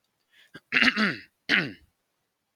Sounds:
Throat clearing